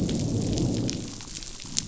{"label": "biophony, growl", "recorder": "SoundTrap 500"}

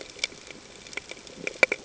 {"label": "ambient", "recorder": "HydroMoth"}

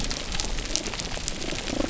{"label": "biophony", "recorder": "SoundTrap 300"}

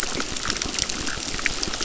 {"label": "biophony, crackle", "recorder": "SoundTrap 600"}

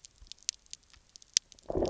{"label": "biophony, low growl", "recorder": "SoundTrap 300"}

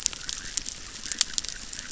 {"label": "biophony, chorus", "recorder": "SoundTrap 600"}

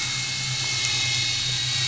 {"label": "anthrophony, boat engine", "recorder": "SoundTrap 500"}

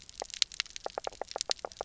{"label": "biophony, knock croak", "recorder": "SoundTrap 300"}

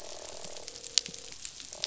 {"label": "biophony, croak", "recorder": "SoundTrap 500"}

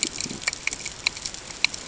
{"label": "ambient", "recorder": "HydroMoth"}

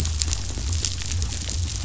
{"label": "biophony", "recorder": "SoundTrap 500"}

